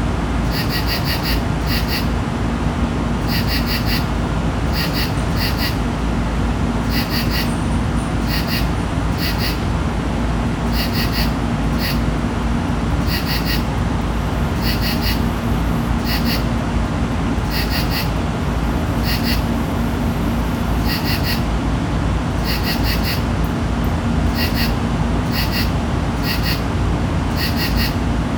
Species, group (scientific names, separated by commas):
Pterophylla camellifolia, Orthoptera